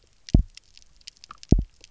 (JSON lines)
{"label": "biophony, double pulse", "recorder": "SoundTrap 300"}